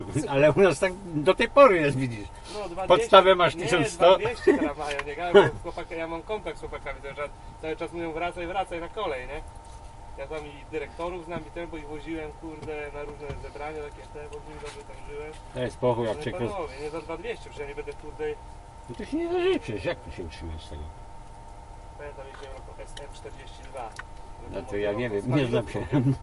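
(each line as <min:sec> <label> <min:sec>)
0:00.0 Two men are speaking Polish in a conversational and spontaneous tone, with one voice close and clear and the other more distant and muffled. 0:26.2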